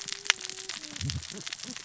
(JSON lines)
{"label": "biophony, cascading saw", "recorder": "SoundTrap 600 or HydroMoth"}